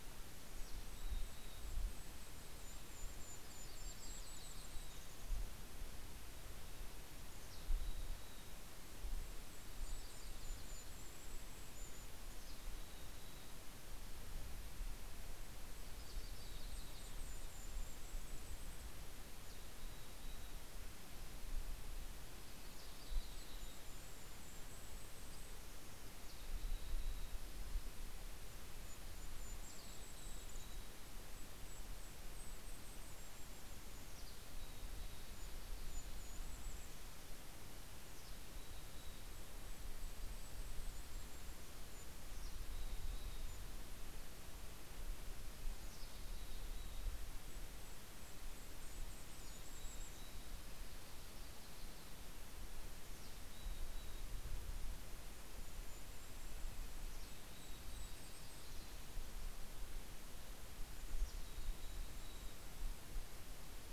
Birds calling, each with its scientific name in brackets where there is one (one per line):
Golden-crowned Kinglet (Regulus satrapa)
Mountain Chickadee (Poecile gambeli)
Yellow-rumped Warbler (Setophaga coronata)
Red-breasted Nuthatch (Sitta canadensis)